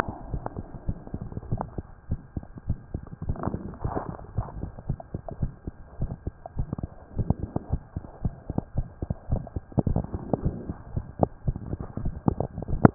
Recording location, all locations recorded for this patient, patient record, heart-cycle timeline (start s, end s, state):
tricuspid valve (TV)
aortic valve (AV)+pulmonary valve (PV)+tricuspid valve (TV)+mitral valve (MV)
#Age: Child
#Sex: Female
#Height: 112.0 cm
#Weight: 22.3 kg
#Pregnancy status: False
#Murmur: Present
#Murmur locations: pulmonary valve (PV)+tricuspid valve (TV)
#Most audible location: pulmonary valve (PV)
#Systolic murmur timing: Holosystolic
#Systolic murmur shape: Plateau
#Systolic murmur grading: I/VI
#Systolic murmur pitch: Low
#Systolic murmur quality: Blowing
#Diastolic murmur timing: nan
#Diastolic murmur shape: nan
#Diastolic murmur grading: nan
#Diastolic murmur pitch: nan
#Diastolic murmur quality: nan
#Outcome: Abnormal
#Campaign: 2015 screening campaign
0.00	0.32	unannotated
0.32	0.46	S1
0.46	0.56	systole
0.56	0.66	S2
0.66	0.84	diastole
0.84	0.98	S1
0.98	1.13	systole
1.13	1.28	S2
1.28	1.50	diastole
1.50	1.66	S1
1.66	1.75	systole
1.75	1.84	S2
1.84	2.07	diastole
2.07	2.20	S1
2.20	2.34	systole
2.34	2.44	S2
2.44	2.67	diastole
2.67	2.78	S1
2.78	2.90	systole
2.90	3.02	S2
3.02	3.26	diastole
3.26	3.38	S1
3.38	3.48	systole
3.48	3.62	S2
3.62	3.81	diastole
3.81	3.94	S1
3.94	4.06	systole
4.06	4.18	S2
4.18	4.34	diastole
4.34	4.46	S1
4.46	4.56	systole
4.56	4.68	S2
4.68	4.86	diastole
4.86	4.98	S1
4.98	5.10	systole
5.10	5.20	S2
5.20	5.39	diastole
5.39	5.52	S1
5.52	5.64	systole
5.64	5.74	S2
5.74	5.97	diastole
5.97	6.11	S1
6.11	6.24	systole
6.24	6.36	S2
6.36	6.55	diastole
6.55	6.67	S1
6.67	6.80	systole
6.80	6.92	S2
6.92	7.16	diastole
7.16	7.27	S1
7.27	7.42	systole
7.42	7.50	S2
7.50	7.70	diastole
7.70	7.80	S1
7.80	7.94	systole
7.94	8.04	S2
8.04	8.22	diastole
8.22	8.31	S1
8.31	8.47	systole
8.47	8.55	S2
8.55	8.73	diastole
8.73	8.84	S1
8.84	8.99	systole
8.99	9.08	S2
9.08	9.29	diastole
9.29	9.41	S1
9.41	9.54	systole
9.54	9.63	S2
9.63	12.94	unannotated